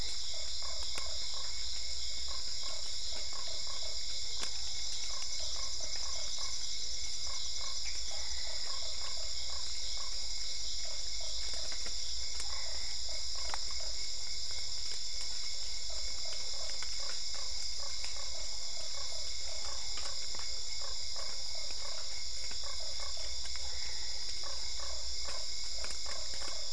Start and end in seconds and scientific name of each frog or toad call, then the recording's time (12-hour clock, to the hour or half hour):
0.0	20.2	Dendropsophus cruzi
0.0	26.7	Boana lundii
23.6	24.4	Boana albopunctata
9:30pm